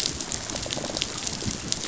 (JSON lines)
{"label": "biophony, rattle response", "recorder": "SoundTrap 500"}